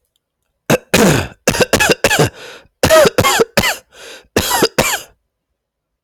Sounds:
Cough